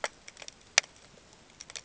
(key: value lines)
label: ambient
recorder: HydroMoth